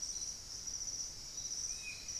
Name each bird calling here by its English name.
Hauxwell's Thrush